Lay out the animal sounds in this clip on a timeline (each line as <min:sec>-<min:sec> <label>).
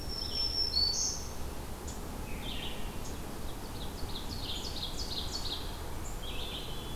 0:00.0-0:01.5 Black-throated Green Warbler (Setophaga virens)
0:00.0-0:07.0 Red-eyed Vireo (Vireo olivaceus)
0:03.4-0:05.9 Ovenbird (Seiurus aurocapilla)